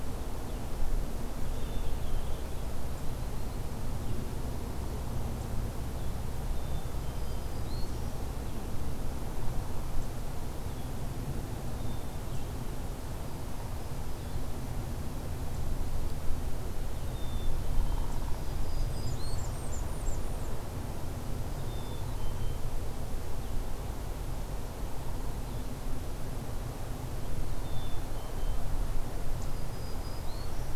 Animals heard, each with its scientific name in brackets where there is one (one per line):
Blackburnian Warbler (Setophaga fusca)
Black-capped Chickadee (Poecile atricapillus)
Downy Woodpecker (Dryobates pubescens)
Black-throated Green Warbler (Setophaga virens)